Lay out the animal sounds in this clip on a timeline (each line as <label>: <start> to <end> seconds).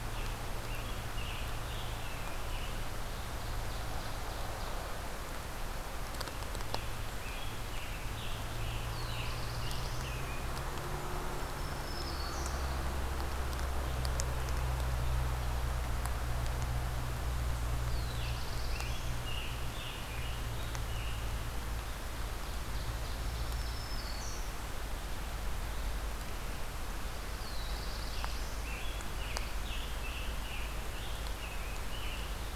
Scarlet Tanager (Piranga olivacea): 0.0 to 2.9 seconds
Ovenbird (Seiurus aurocapilla): 2.9 to 4.9 seconds
Scarlet Tanager (Piranga olivacea): 6.0 to 10.5 seconds
Black-throated Blue Warbler (Setophaga caerulescens): 8.6 to 10.1 seconds
Black-throated Green Warbler (Setophaga virens): 11.2 to 12.7 seconds
Pine Warbler (Setophaga pinus): 11.5 to 13.4 seconds
Black-throated Blue Warbler (Setophaga caerulescens): 17.5 to 19.5 seconds
Scarlet Tanager (Piranga olivacea): 18.0 to 21.8 seconds
Ovenbird (Seiurus aurocapilla): 21.9 to 24.0 seconds
Black-throated Green Warbler (Setophaga virens): 22.8 to 24.7 seconds
Pine Warbler (Setophaga pinus): 26.8 to 28.5 seconds
Black-throated Blue Warbler (Setophaga caerulescens): 27.1 to 28.9 seconds
Scarlet Tanager (Piranga olivacea): 28.0 to 32.6 seconds